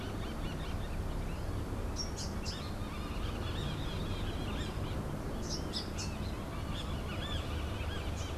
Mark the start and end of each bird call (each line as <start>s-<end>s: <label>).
1.9s-6.2s: Rufous-capped Warbler (Basileuterus rufifrons)